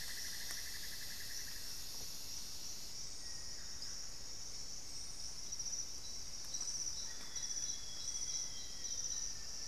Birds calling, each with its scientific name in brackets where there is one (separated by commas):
Little Tinamou (Crypturellus soui), Elegant Woodcreeper (Xiphorhynchus elegans), Amazonian Barred-Woodcreeper (Dendrocolaptes certhia), Amazonian Grosbeak (Cyanoloxia rothschildii), Thrush-like Wren (Campylorhynchus turdinus), Cinnamon-throated Woodcreeper (Dendrexetastes rufigula)